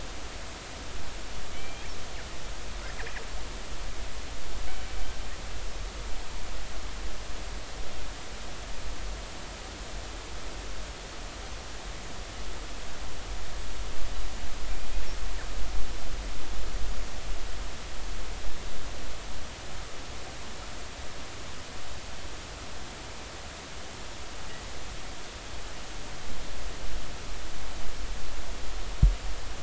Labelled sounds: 1.5	1.9	killer whale, northern resident, G clan, 2.2 to 3.3 kHz

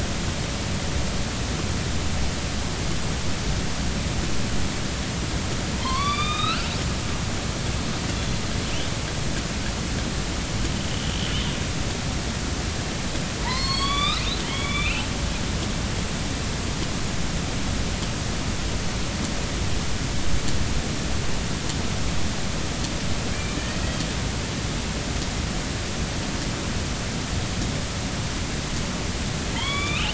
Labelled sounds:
5.8	6.7	killer whale, northern resident, A clan, AB subclan, call N16, 0.90 to 5.0 kHz
8.2	8.4	killer whale, northern resident, A clan, AB subclan, 4.0 to 4.2 kHz
13.4	15.1	killer whale, northern resident, A clan, AB subclan, call N16, 0.83 to 7.0 kHz
23.3	23.8	killer whale, northern resident, A clan, AB subclan, 1.7 to 2.4 kHz
29.5	30.1	killer whale, northern resident, A clan, AB subclan, call N16, 0.86 to 3.9 kHz

